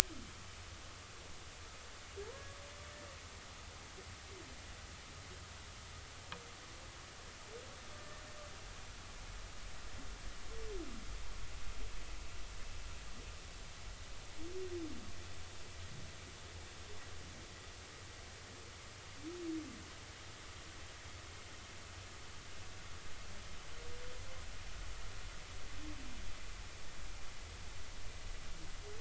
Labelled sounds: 2.2	2.6	humpback whale, 0.86 to 1.2 kHz
8.0	8.2	humpback whale, 1.7 to 1.8 kHz

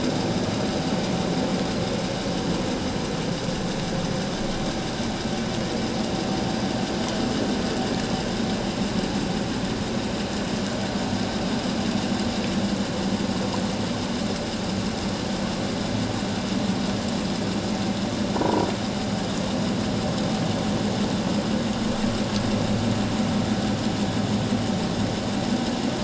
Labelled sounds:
18.4	18.7	croaking sound likely from a nearby submerged object, 0.84 to 1.1 kHz

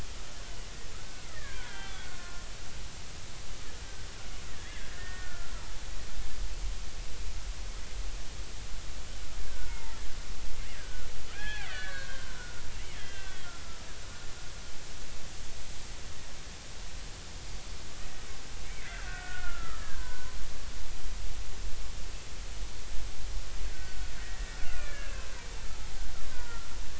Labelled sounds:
0.9	2.5	killer whale, Bigg's (transient), 1.0 to 3.5 kHz
4.5	5.5	killer whale, Bigg's (transient), 1.3 to 2.1 kHz
9.5	10.0	killer whale, Bigg's (transient), 0.86 to 2.2 kHz
10.8	12.6	killer whale, Bigg's (transient), 0.80 to 4.2 kHz
12.9	13.5	killer whale, Bigg's (transient), 1.5 to 3.6 kHz
18.6	20.4	killer whale, Bigg's (transient), 0.93 to 2.4 kHz
23.7	25.3	killer whale, Bigg's (transient), 1.3 to 2.8 kHz
26.3	26.7	killer whale, Bigg's (transient), 0.90 to 1.6 kHz

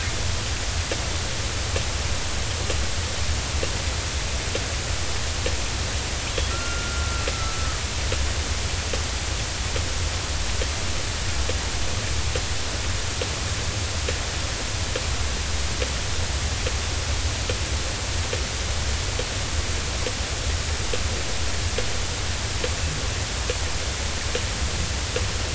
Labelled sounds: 6.5	7.8	killer whale, 1.2 to 1.5 kHz

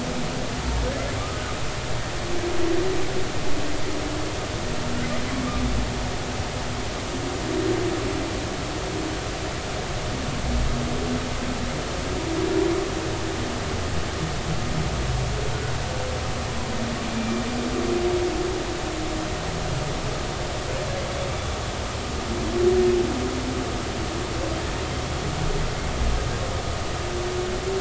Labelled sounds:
17.1	17.4	humpback whale, 2.3 to 2.4 kHz

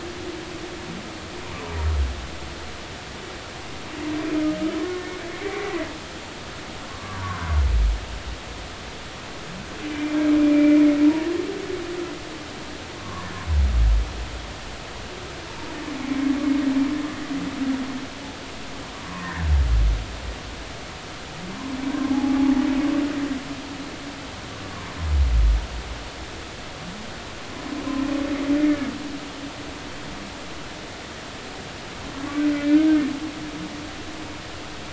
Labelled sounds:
6.9	7.5	humpback whale, 0.93 to 1.2 kHz
9.9	10.8	humpback whale, 2.3 to 2.4 kHz
13.0	13.3	humpback whale, 0.96 to 1.2 kHz
18.9	19.5	humpback whale, 0.93 to 1.9 kHz
22.1	22.4	humpback whale, 0.80 to 0.90 kHz
32.5	32.8	humpback whale, 2.3 to 2.5 kHz

